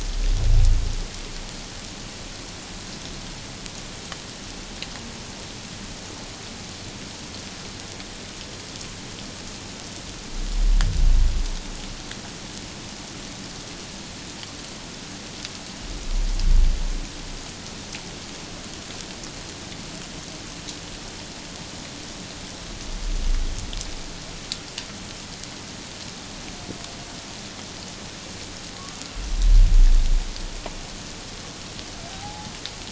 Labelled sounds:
32.1	32.5	humpback whale, 0.78 to 0.91 kHz

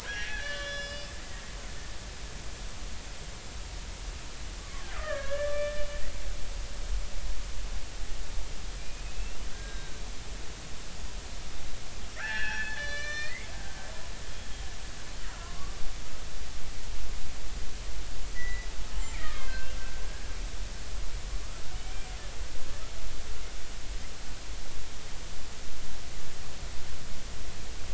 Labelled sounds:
1.2	1.4	killer whale, Bigg's (transient), 1.8 to 2.0 kHz
4.6	5.9	killer whale, Bigg's (transient), 1.0 to 2.4 kHz
8.8	10.0	killer whale, Bigg's (transient), 1.4 to 3.9 kHz
12.2	13.5	killer whale, Bigg's (transient), 1.1 to 6.0 kHz
15.4	15.8	killer whale, Bigg's (transient), 0.93 to 1.2 kHz
18.3	18.7	killer whale, Bigg's (transient), 1.9 to 2.1 kHz
19.2	19.8	killer whale, Bigg's (transient), 1.0 to 2.9 kHz
20.0	20.3	killer whale, Bigg's (transient), 1.6 to 1.7 kHz

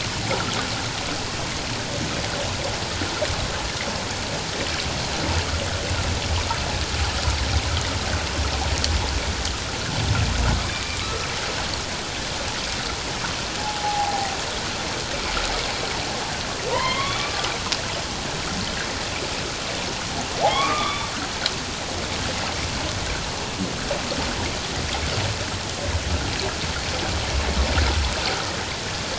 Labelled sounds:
10.8	11.3	humpback whale, 1.1 to 1.4 kHz
13.6	14.4	humpback whale, 0.78 to 0.94 kHz
16.7	17.5	humpback whale, 0.91 to 3.6 kHz
20.5	21.1	humpback whale, 1.0 to 3.6 kHz

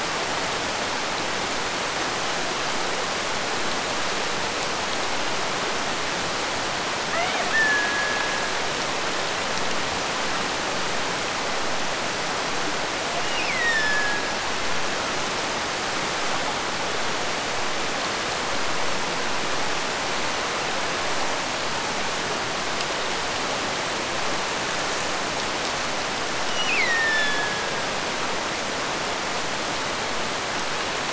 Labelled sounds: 7.1	8.6	killer whale, Bigg's (transient), Gulf of Alaska transient, 0.39 to 3.9 kHz
13.2	14.5	killer whale, Bigg's (transient), Gulf of Alaska transient, 1.5 to 7.7 kHz
26.4	28.2	killer whale, Bigg's (transient), Gulf of Alaska transient, 1.4 to 6.0 kHz

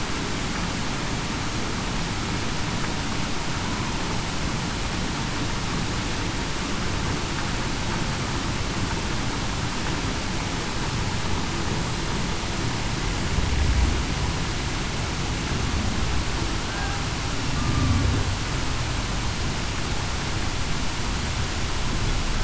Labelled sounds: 17.5	17.9	killer whale, Bigg's (transient), 1.1 to 1.2 kHz

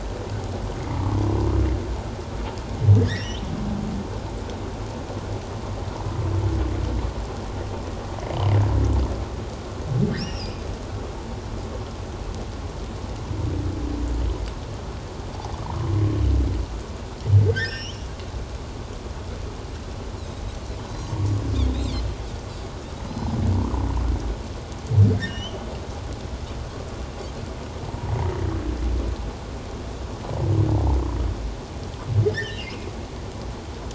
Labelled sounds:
3.0	3.4	humpback whale, 1.6 to 6.0 kHz
10.2	10.7	humpback whale, 2.6 to 5.8 kHz
17.5	18.1	humpback whale, 1.5 to 6.1 kHz
20.2	20.4	Pacific white-sided dolphin, 3.7 to 4.2 kHz
21.7	22.0	Pacific white-sided dolphin, 2.0 to 4.2 kHz
23.1	23.4	Pacific white-sided dolphin, 5.0 to 5.2 kHz
25.2	25.6	Pacific white-sided dolphin, 1.5 to 6.1 kHz
27.8	28.1	humpback whale, 0.88 to 1.0 kHz
32.3	32.9	humpback whale, 1.6 to 5.2 kHz

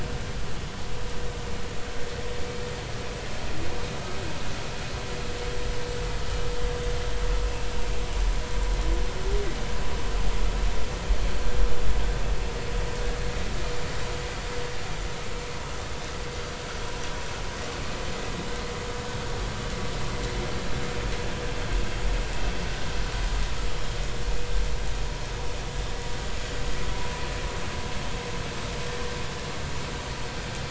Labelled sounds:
7.4	7.7	vessel noise, 2.5 to 2.7 kHz

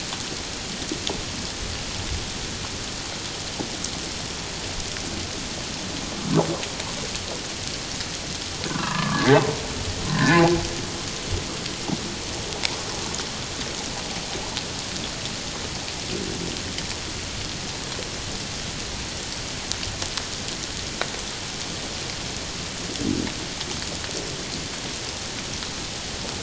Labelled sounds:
8.7	9.5	humpback whale, 0.78 to 2.1 kHz
10.0	10.4	humpback whale, 1.0 to 1.9 kHz

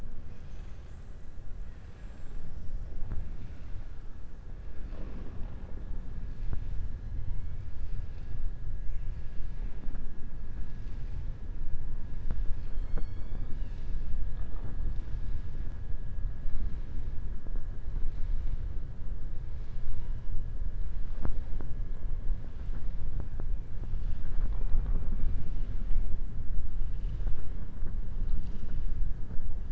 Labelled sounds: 1.8	2.4	killer whale, southern resident, 7.2 to 8.0 kHz

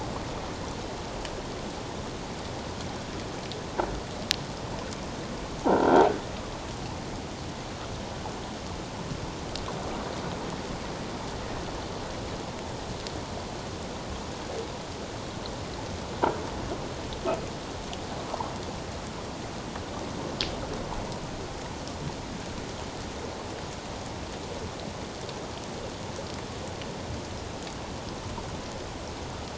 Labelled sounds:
5.6	6.0	croaking sound likely from a nearby submerged object, 0.78 to 1.6 kHz

